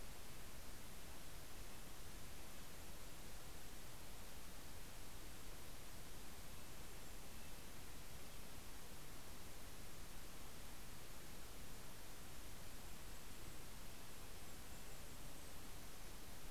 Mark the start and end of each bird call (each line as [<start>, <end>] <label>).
[0.00, 3.07] Red-breasted Nuthatch (Sitta canadensis)
[5.87, 8.67] Red-breasted Nuthatch (Sitta canadensis)
[12.37, 16.47] Golden-crowned Kinglet (Regulus satrapa)
[12.47, 15.07] Red-breasted Nuthatch (Sitta canadensis)